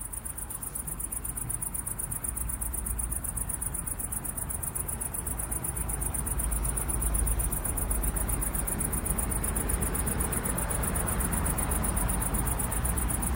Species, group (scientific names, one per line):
Tettigonia viridissima
Orthoptera